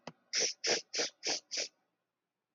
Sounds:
Sniff